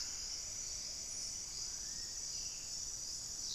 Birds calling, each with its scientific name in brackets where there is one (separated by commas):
Black-faced Cotinga (Conioptilon mcilhennyi)